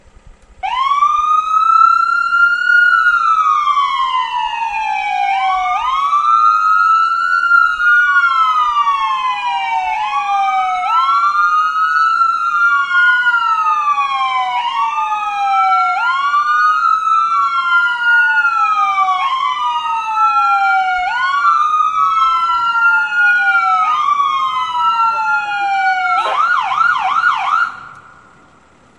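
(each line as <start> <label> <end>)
0.0 A steady, low hum from an idling car. 29.0
0.6 A high-pitched wail echoing through the streets from a siren of an ambulance or police car. 26.2
25.0 A person is speaking quietly through a transmitter. 25.5
26.5 A high-pitched, fast wailing siren from an emergency vehicle. 27.9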